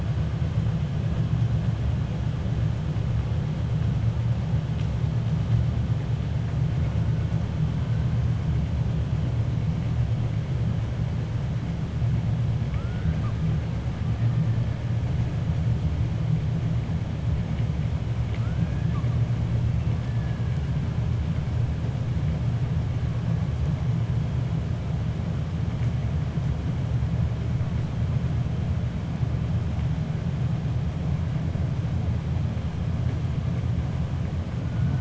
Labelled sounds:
12.6	13.4	killer whale, 1.0 to 2.4 kHz

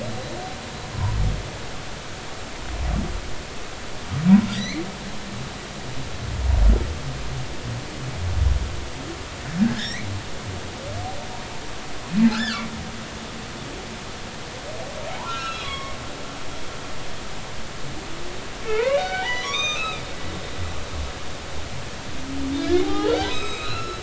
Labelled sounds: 4.5	4.8	humpback whale, 1.8 to 6.3 kHz
9.6	10.1	humpback whale, 1.5 to 5.9 kHz
12.3	12.7	humpback whale, 1.1 to 3.6 kHz
15.2	15.9	humpback whale, 1.0 to 6.6 kHz
18.7	20.4	humpback whale, 0.80 to 6.3 kHz
22.5	24.0	humpback whale, 0.80 to 7.7 kHz

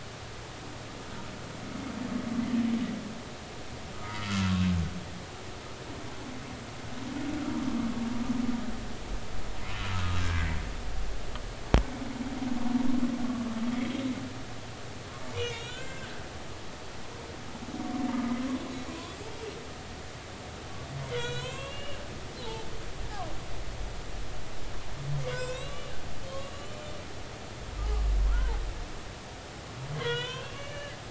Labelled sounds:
4.2	4.5	humpback whale, 1.2 to 1.4 kHz
9.7	10.5	humpback whale, 1.2 to 1.7 kHz
15.3	16.1	humpback whale, 1.4 to 4.1 kHz
21.1	22.0	humpback whale, 0.96 to 7.0 kHz
22.4	22.7	humpback whale, 0.83 to 1.0 kHz
25.3	26.0	humpback whale, 0.96 to 8.0 kHz
26.5	26.9	humpback whale, 1.1 to 7.3 kHz
28.3	28.6	humpback whale, 0.80 to 1.1 kHz
30.0	31.0	humpback whale, 0.93 to 6.1 kHz

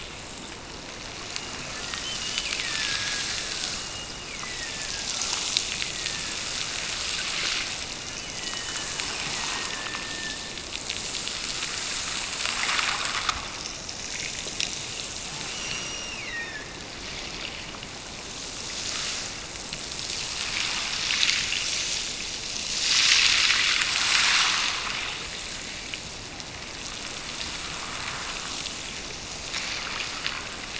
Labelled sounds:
1.3	3.4	killer whale, Bigg's (transient), Gulf of Alaska transient, 1.4 to 3.2 kHz
3.7	6.5	killer whale, Bigg's (transient), Gulf of Alaska transient, 1.4 to 2.9 kHz
8.2	10.6	killer whale, Bigg's (transient), Gulf of Alaska transient, 1.5 to 3.1 kHz
15.4	16.8	killer whale, Bigg's (transient), Gulf of Alaska transient, 1.6 to 6.0 kHz

